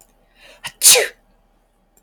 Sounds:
Sneeze